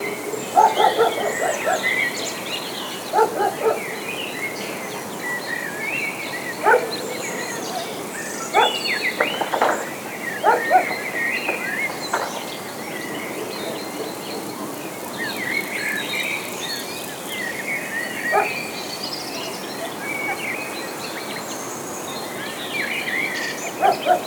Are there birds chirping in the background?
yes